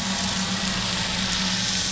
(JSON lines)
{"label": "anthrophony, boat engine", "recorder": "SoundTrap 500"}